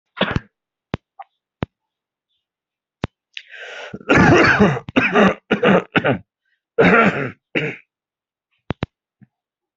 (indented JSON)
{
  "expert_labels": [
    {
      "quality": "ok",
      "cough_type": "wet",
      "dyspnea": false,
      "wheezing": false,
      "stridor": false,
      "choking": false,
      "congestion": false,
      "nothing": true,
      "diagnosis": "lower respiratory tract infection",
      "severity": "mild"
    },
    {
      "quality": "ok",
      "cough_type": "wet",
      "dyspnea": false,
      "wheezing": false,
      "stridor": false,
      "choking": false,
      "congestion": false,
      "nothing": false,
      "diagnosis": "lower respiratory tract infection",
      "severity": "mild"
    },
    {
      "quality": "good",
      "cough_type": "wet",
      "dyspnea": false,
      "wheezing": false,
      "stridor": false,
      "choking": false,
      "congestion": false,
      "nothing": true,
      "diagnosis": "lower respiratory tract infection",
      "severity": "severe"
    },
    {
      "quality": "good",
      "cough_type": "wet",
      "dyspnea": false,
      "wheezing": false,
      "stridor": false,
      "choking": false,
      "congestion": false,
      "nothing": true,
      "diagnosis": "lower respiratory tract infection",
      "severity": "mild"
    }
  ],
  "age": 39,
  "gender": "male",
  "respiratory_condition": false,
  "fever_muscle_pain": true,
  "status": "healthy"
}